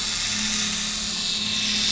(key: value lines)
label: anthrophony, boat engine
recorder: SoundTrap 500